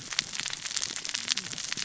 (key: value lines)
label: biophony, cascading saw
recorder: SoundTrap 600 or HydroMoth